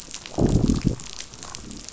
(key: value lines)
label: biophony, growl
recorder: SoundTrap 500